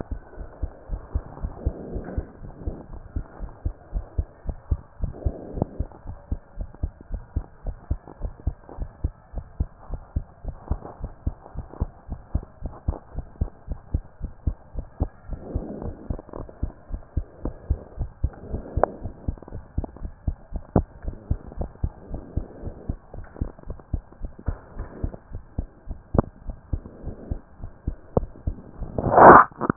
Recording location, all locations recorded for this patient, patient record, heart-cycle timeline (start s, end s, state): pulmonary valve (PV)
aortic valve (AV)+pulmonary valve (PV)+tricuspid valve (TV)+mitral valve (MV)
#Age: Child
#Sex: Female
#Height: 133.0 cm
#Weight: 34.6 kg
#Pregnancy status: False
#Murmur: Absent
#Murmur locations: nan
#Most audible location: nan
#Systolic murmur timing: nan
#Systolic murmur shape: nan
#Systolic murmur grading: nan
#Systolic murmur pitch: nan
#Systolic murmur quality: nan
#Diastolic murmur timing: nan
#Diastolic murmur shape: nan
#Diastolic murmur grading: nan
#Diastolic murmur pitch: nan
#Diastolic murmur quality: nan
#Outcome: Abnormal
#Campaign: 2014 screening campaign
0.00	0.29	unannotated
0.29	0.38	diastole
0.38	0.48	S1
0.48	0.60	systole
0.60	0.72	S2
0.72	0.90	diastole
0.90	1.02	S1
1.02	1.14	systole
1.14	1.26	S2
1.26	1.40	diastole
1.40	1.54	S1
1.54	1.64	systole
1.64	1.74	S2
1.74	1.92	diastole
1.92	2.06	S1
2.06	2.14	systole
2.14	2.26	S2
2.26	2.42	diastole
2.42	2.52	S1
2.52	2.64	systole
2.64	2.74	S2
2.74	2.92	diastole
2.92	3.02	S1
3.02	3.12	systole
3.12	3.24	S2
3.24	3.42	diastole
3.42	3.52	S1
3.52	3.60	systole
3.60	3.74	S2
3.74	3.94	diastole
3.94	4.06	S1
4.06	4.16	systole
4.16	4.28	S2
4.28	4.46	diastole
4.46	4.56	S1
4.56	4.70	systole
4.70	4.82	S2
4.82	4.98	diastole
4.98	5.14	S1
5.14	5.22	systole
5.22	5.34	S2
5.34	5.54	diastole
5.54	5.68	S1
5.68	5.78	systole
5.78	5.92	S2
5.92	6.08	diastole
6.08	6.18	S1
6.18	6.30	systole
6.30	6.42	S2
6.42	6.58	diastole
6.58	6.68	S1
6.68	6.80	systole
6.80	6.94	S2
6.94	7.12	diastole
7.12	7.24	S1
7.24	7.34	systole
7.34	7.48	S2
7.48	7.66	diastole
7.66	7.76	S1
7.76	7.86	systole
7.86	8.00	S2
8.00	8.20	diastole
8.20	8.32	S1
8.32	8.42	systole
8.42	8.56	S2
8.56	8.76	diastole
8.76	8.90	S1
8.90	9.00	systole
9.00	9.14	S2
9.14	9.32	diastole
9.32	9.44	S1
9.44	9.56	systole
9.56	9.70	S2
9.70	9.88	diastole
9.88	10.02	S1
10.02	10.12	systole
10.12	10.26	S2
10.26	10.44	diastole
10.44	10.56	S1
10.56	10.68	systole
10.68	10.82	S2
10.82	11.00	diastole
11.00	11.12	S1
11.12	11.22	systole
11.22	11.36	S2
11.36	11.56	diastole
11.56	11.66	S1
11.66	11.80	systole
11.80	11.92	S2
11.92	12.10	diastole
12.10	12.20	S1
12.20	12.32	systole
12.32	12.46	S2
12.46	12.64	diastole
12.64	12.74	S1
12.74	12.84	systole
12.84	13.00	S2
13.00	13.16	diastole
13.16	13.26	S1
13.26	13.40	systole
13.40	13.50	S2
13.50	13.68	diastole
13.68	13.78	S1
13.78	13.90	systole
13.90	14.06	S2
14.06	14.22	diastole
14.22	14.32	S1
14.32	14.44	systole
14.44	14.56	S2
14.56	14.74	diastole
14.74	14.86	S1
14.86	15.00	systole
15.00	15.10	S2
15.10	15.28	diastole
15.28	15.40	S1
15.40	15.54	systole
15.54	15.68	S2
15.68	15.84	diastole
15.84	15.96	S1
15.96	16.08	systole
16.08	16.20	S2
16.20	16.36	diastole
16.36	16.48	S1
16.48	16.62	systole
16.62	16.74	S2
16.74	16.92	diastole
16.92	17.02	S1
17.02	17.16	systole
17.16	17.28	S2
17.28	17.44	diastole
17.44	17.56	S1
17.56	17.68	systole
17.68	17.82	S2
17.82	17.98	diastole
17.98	18.12	S1
18.12	18.24	systole
18.24	18.36	S2
18.36	18.52	diastole
18.52	18.62	S1
18.62	18.74	systole
18.74	18.88	S2
18.88	19.02	diastole
19.02	19.14	S1
19.14	19.26	systole
19.26	19.38	S2
19.38	19.52	diastole
19.52	19.64	S1
19.64	19.74	systole
19.74	19.88	S2
19.88	20.02	diastole
20.02	20.12	S1
20.12	20.24	systole
20.24	20.38	S2
20.38	20.54	diastole
20.54	20.64	S1
20.64	20.74	systole
20.74	20.88	S2
20.88	21.06	diastole
21.06	21.16	S1
21.16	21.28	systole
21.28	21.40	S2
21.40	21.58	diastole
21.58	21.72	S1
21.72	21.82	systole
21.82	21.94	S2
21.94	22.10	diastole
22.10	22.22	S1
22.22	22.34	systole
22.34	22.48	S2
22.48	22.64	diastole
22.64	22.74	S1
22.74	22.88	systole
22.88	23.00	S2
23.00	23.16	diastole
23.16	23.26	S1
23.26	23.40	systole
23.40	23.52	S2
23.52	23.68	diastole
23.68	23.78	S1
23.78	23.92	systole
23.92	24.04	S2
24.04	24.22	diastole
24.22	24.32	S1
24.32	24.46	systole
24.46	24.60	S2
24.60	24.78	diastole
24.78	24.88	S1
24.88	25.02	systole
25.02	25.14	S2
25.14	25.32	diastole
25.32	25.42	S1
25.42	25.54	systole
25.54	25.70	S2
25.70	25.88	diastole
25.88	25.98	S1
25.98	26.12	systole
26.12	26.26	S2
26.26	26.46	diastole
26.46	26.58	S1
26.58	26.70	systole
26.70	26.84	S2
26.84	27.02	diastole
27.02	27.16	S1
27.16	27.30	systole
27.30	27.44	S2
27.44	27.62	diastole
27.62	27.74	S1
27.74	27.86	systole
27.86	27.98	S2
27.98	28.20	diastole
28.20	28.32	S1
28.32	28.46	systole
28.46	28.60	S2
28.60	28.78	diastole
28.78	29.76	unannotated